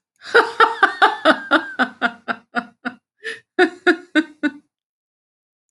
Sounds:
Laughter